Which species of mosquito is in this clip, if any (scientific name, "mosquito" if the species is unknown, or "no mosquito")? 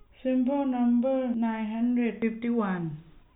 no mosquito